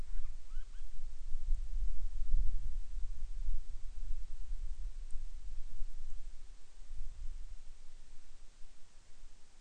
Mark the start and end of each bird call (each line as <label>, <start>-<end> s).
Band-rumped Storm-Petrel (Hydrobates castro), 0.0-0.9 s